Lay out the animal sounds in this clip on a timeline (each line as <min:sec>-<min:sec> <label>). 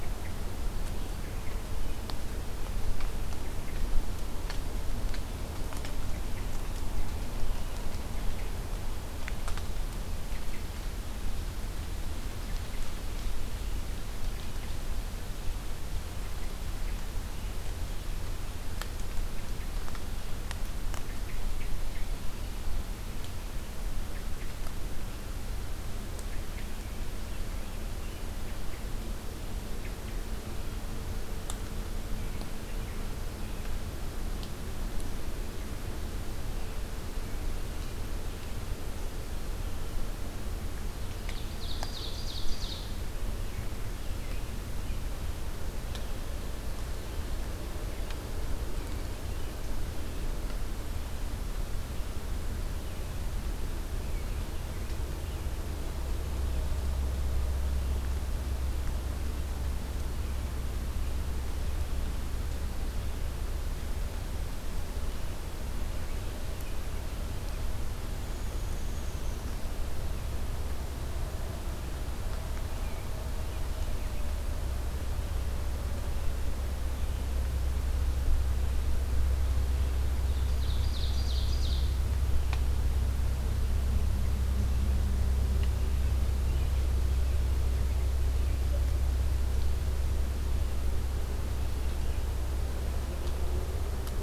0:41.1-0:42.9 Ovenbird (Seiurus aurocapilla)
1:07.9-1:09.7 Black-capped Chickadee (Poecile atricapillus)
1:20.1-1:22.0 Ovenbird (Seiurus aurocapilla)